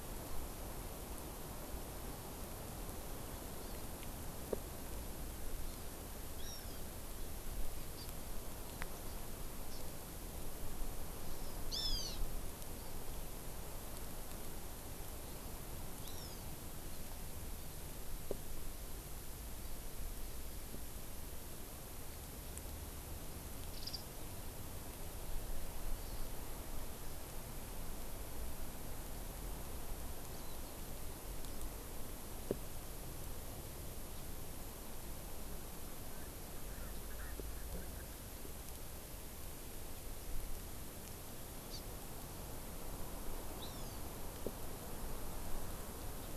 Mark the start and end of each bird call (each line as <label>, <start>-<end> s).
Hawaiian Hawk (Buteo solitarius), 6.4-6.8 s
Hawaii Amakihi (Chlorodrepanis virens), 8.0-8.1 s
Hawaii Amakihi (Chlorodrepanis virens), 9.7-9.8 s
Hawaiian Hawk (Buteo solitarius), 11.7-12.2 s
Hawaiian Hawk (Buteo solitarius), 16.0-16.5 s
Warbling White-eye (Zosterops japonicus), 23.7-24.0 s
Erckel's Francolin (Pternistis erckelii), 36.1-38.0 s
Hawaii Amakihi (Chlorodrepanis virens), 41.7-41.8 s
Hawaiian Hawk (Buteo solitarius), 43.6-44.0 s